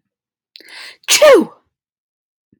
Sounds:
Sneeze